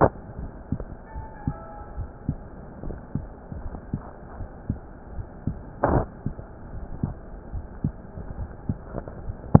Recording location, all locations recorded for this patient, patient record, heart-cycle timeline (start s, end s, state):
aortic valve (AV)
aortic valve (AV)+pulmonary valve (PV)+tricuspid valve (TV)+mitral valve (MV)
#Age: Adolescent
#Sex: Male
#Height: 171.0 cm
#Weight: 50.2 kg
#Pregnancy status: False
#Murmur: Absent
#Murmur locations: nan
#Most audible location: nan
#Systolic murmur timing: nan
#Systolic murmur shape: nan
#Systolic murmur grading: nan
#Systolic murmur pitch: nan
#Systolic murmur quality: nan
#Diastolic murmur timing: nan
#Diastolic murmur shape: nan
#Diastolic murmur grading: nan
#Diastolic murmur pitch: nan
#Diastolic murmur quality: nan
#Outcome: Normal
#Campaign: 2015 screening campaign
0.00	1.13	unannotated
1.13	1.27	S1
1.27	1.42	systole
1.42	1.54	S2
1.54	1.95	diastole
1.95	2.08	S1
2.08	2.25	systole
2.25	2.38	S2
2.38	2.81	diastole
2.81	2.96	S1
2.96	3.12	systole
3.12	3.23	S2
3.23	3.61	diastole
3.61	3.72	S1
3.72	3.91	systole
3.91	4.00	S2
4.00	4.38	diastole
4.38	4.48	S1
4.48	4.66	systole
4.66	4.76	S2
4.76	5.16	diastole
5.16	5.26	S1
5.26	5.44	systole
5.44	5.52	S2
5.52	7.46	unannotated
7.46	7.66	S1
7.66	7.80	systole
7.80	7.95	S2
7.95	8.35	diastole
8.35	8.48	S1
8.48	8.66	systole
8.66	8.76	S2
8.76	9.22	diastole
9.22	9.38	S1
9.38	9.60	unannotated